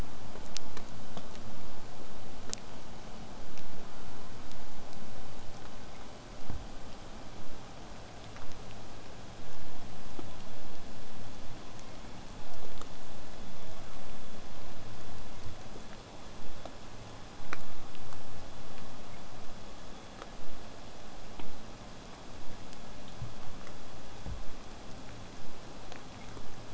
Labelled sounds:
3.8	4.3	killer whale, southern resident, J pod, call S04, 0.24 to 1.8 kHz
11.8	12.9	killer whale, southern resident, J pod, call S01, 0.19 to 2.6 kHz

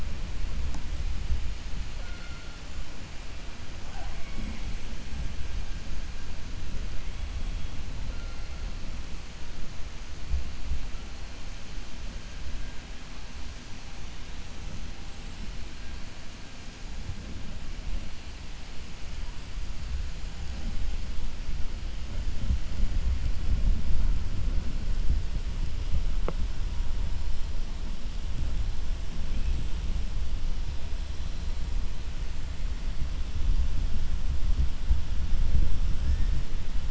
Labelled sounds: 1.9	2.5	killer whale, 0.53 to 2.2 kHz

